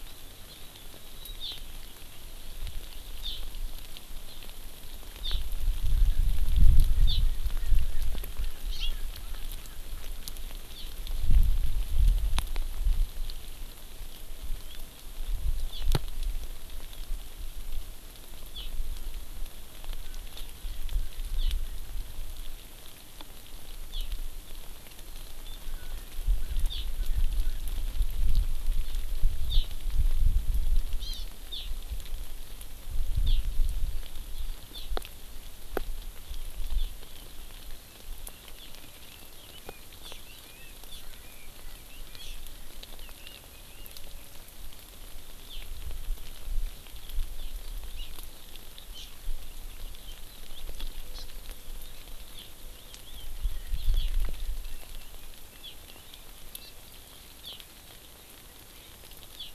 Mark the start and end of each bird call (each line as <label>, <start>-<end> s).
Erckel's Francolin (Pternistis erckelii), 7.0-9.8 s
Erckel's Francolin (Pternistis erckelii), 20.0-21.9 s
Erckel's Francolin (Pternistis erckelii), 25.7-27.6 s
Hawaii Amakihi (Chlorodrepanis virens), 31.0-31.3 s
Red-billed Leiothrix (Leiothrix lutea), 38.8-42.1 s
Hawaii Amakihi (Chlorodrepanis virens), 51.2-51.3 s
Red-billed Leiothrix (Leiothrix lutea), 52.7-56.3 s